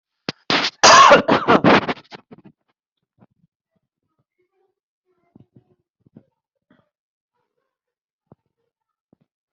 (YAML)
expert_labels:
- quality: poor
  cough_type: unknown
  dyspnea: false
  wheezing: false
  stridor: false
  choking: false
  congestion: false
  nothing: true
  diagnosis: healthy cough
  severity: pseudocough/healthy cough